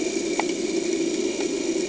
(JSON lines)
{"label": "anthrophony, boat engine", "recorder": "HydroMoth"}